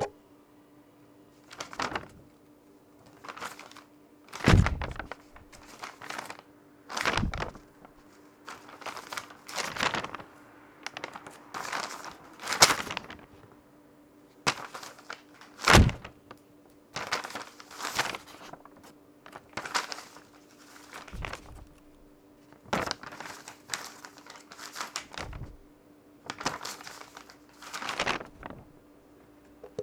Is something dropped?
yes